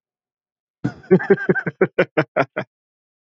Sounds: Laughter